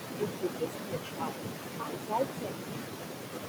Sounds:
Cough